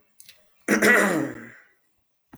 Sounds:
Throat clearing